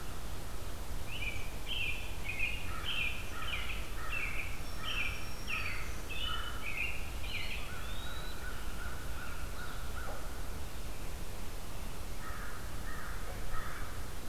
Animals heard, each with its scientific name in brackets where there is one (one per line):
American Robin (Turdus migratorius)
American Crow (Corvus brachyrhynchos)
Black-throated Green Warbler (Setophaga virens)
Eastern Wood-Pewee (Contopus virens)